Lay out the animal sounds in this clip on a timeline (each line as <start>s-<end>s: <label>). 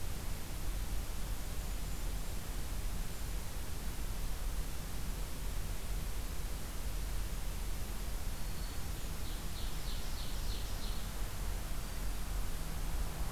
1.2s-2.5s: Golden-crowned Kinglet (Regulus satrapa)
8.3s-8.9s: Black-throated Green Warbler (Setophaga virens)
8.7s-10.8s: Golden-crowned Kinglet (Regulus satrapa)
9.1s-11.1s: Ovenbird (Seiurus aurocapilla)
11.7s-12.3s: Black-throated Green Warbler (Setophaga virens)